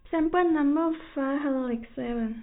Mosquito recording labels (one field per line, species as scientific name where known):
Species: no mosquito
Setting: cup